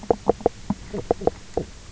{"label": "biophony, knock croak", "recorder": "SoundTrap 300"}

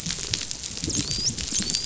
{"label": "biophony, dolphin", "recorder": "SoundTrap 500"}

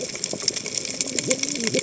{"label": "biophony, cascading saw", "recorder": "HydroMoth"}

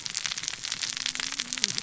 {"label": "biophony, cascading saw", "recorder": "SoundTrap 600 or HydroMoth"}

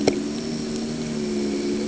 {"label": "anthrophony, boat engine", "recorder": "HydroMoth"}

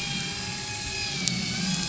{"label": "anthrophony, boat engine", "recorder": "SoundTrap 500"}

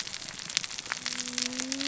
{"label": "biophony, cascading saw", "recorder": "SoundTrap 600 or HydroMoth"}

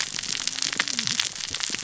{"label": "biophony, cascading saw", "recorder": "SoundTrap 600 or HydroMoth"}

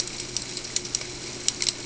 {"label": "ambient", "recorder": "HydroMoth"}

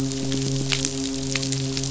{"label": "biophony", "recorder": "SoundTrap 500"}
{"label": "biophony, midshipman", "recorder": "SoundTrap 500"}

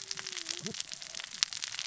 {"label": "biophony, cascading saw", "recorder": "SoundTrap 600 or HydroMoth"}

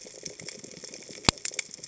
{"label": "biophony", "recorder": "HydroMoth"}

